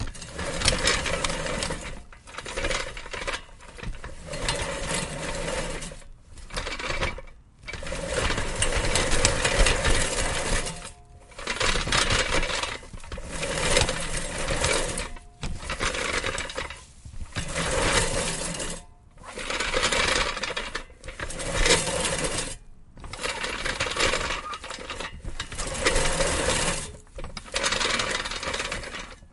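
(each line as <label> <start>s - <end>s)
A hand mower is being pushed forward, producing clattering metallic sounds. 0.4s - 2.0s
A manual hand mower being pulled backward. 2.2s - 3.5s
A hand mower is being pushed forward, producing clattering metallic sounds. 4.2s - 5.8s
A manual hand mower being pulled backward. 6.5s - 7.2s
A hand mower is being pushed forward, producing clattering metallic sounds. 7.7s - 10.8s
A manual hand mower being pulled backward. 11.4s - 12.8s
A hand mower is being pushed forward, producing clattering metallic sounds. 13.2s - 15.1s
A manual hand mower being pulled backward. 15.4s - 16.8s
A hand mower is being pushed forward, producing clattering metallic sounds. 17.3s - 18.9s
A manual hand mower being pulled backward. 19.3s - 20.8s
A hand mower is being pushed forward, producing clattering metallic sounds. 21.0s - 22.6s
A manual hand mower being pulled backward. 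23.1s - 25.1s
A hand mower is being pushed forward, producing clattering metallic sounds. 25.5s - 27.1s
A manual hand mower being pulled backward. 27.5s - 29.1s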